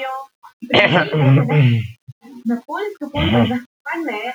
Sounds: Throat clearing